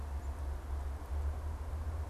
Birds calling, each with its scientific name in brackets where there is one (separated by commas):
unidentified bird